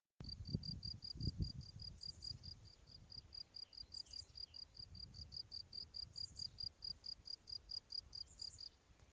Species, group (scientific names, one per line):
Gryllus campestris
Orthoptera